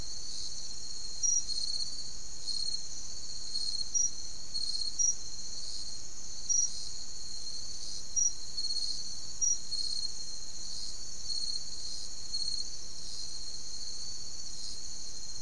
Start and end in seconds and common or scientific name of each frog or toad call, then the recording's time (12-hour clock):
none
2:15am